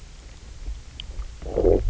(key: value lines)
label: biophony, low growl
recorder: SoundTrap 300